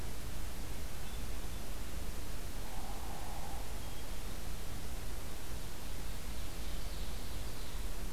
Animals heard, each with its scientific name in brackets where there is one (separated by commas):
Ovenbird (Seiurus aurocapilla), Hairy Woodpecker (Dryobates villosus), Hermit Thrush (Catharus guttatus)